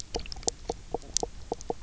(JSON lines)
{"label": "biophony, knock croak", "recorder": "SoundTrap 300"}